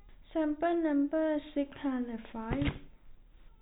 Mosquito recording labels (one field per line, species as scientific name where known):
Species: no mosquito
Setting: cup